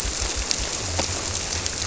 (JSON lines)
{"label": "biophony", "recorder": "SoundTrap 300"}